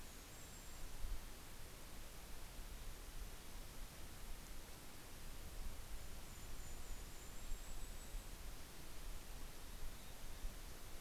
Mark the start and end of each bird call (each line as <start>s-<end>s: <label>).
0.0s-1.7s: Golden-crowned Kinglet (Regulus satrapa)
4.6s-9.9s: Golden-crowned Kinglet (Regulus satrapa)
7.0s-10.9s: Mountain Chickadee (Poecile gambeli)